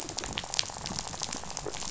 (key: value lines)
label: biophony, rattle
recorder: SoundTrap 500